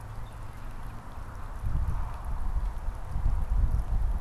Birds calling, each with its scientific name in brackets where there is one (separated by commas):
Northern Cardinal (Cardinalis cardinalis), Red-winged Blackbird (Agelaius phoeniceus)